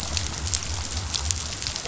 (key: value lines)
label: biophony
recorder: SoundTrap 500